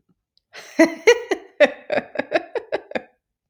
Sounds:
Laughter